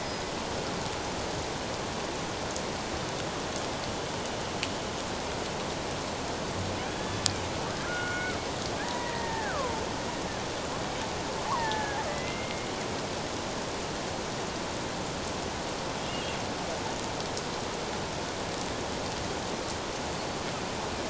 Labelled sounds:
0.0	0.3	killer whale, Bigg's (transient), 4.9 to 5.1 kHz
6.9	9.8	killer whale, Bigg's (transient), 0.78 to 3.5 kHz
11.5	12.7	killer whale, Bigg's (transient), 0.81 to 2.3 kHz
16.1	16.4	killer whale, Bigg's (transient), 2.6 to 2.9 kHz

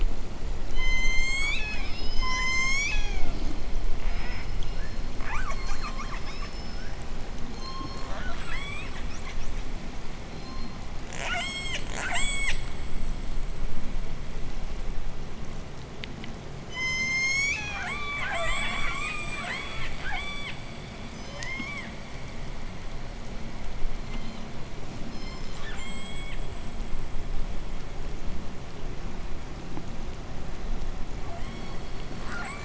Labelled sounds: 0.6	3.4	killer whale, southern resident, J pod, call S01, 0.51 to 8.0 kHz
3.9	7.1	killer whale, southern resident, J pod, call S10, 0.48 to 8.0 kHz
7.4	9.1	killer whale, southern resident, J pod, 0.72 to 8.0 kHz
10.2	12.8	killer whale, southern resident, J pod, 0.37 to 8.0 kHz
16.5	18.0	killer whale, southern resident, J pod, call S01, 0.72 to 8.0 kHz
17.7	20.7	killer whale, southern resident, J pod, 0.39 to 8.0 kHz
21.1	21.9	killer whale, southern resident, J pod, 0.67 to 8.0 kHz
24.0	24.7	killer whale, southern resident, J pod, 1.8 to 8.0 kHz
25.1	26.6	killer whale, southern resident, J pod, 1.1 to 8.0 kHz
31.1	32.6	killer whale, southern resident, J pod, 0.74 to 8.0 kHz

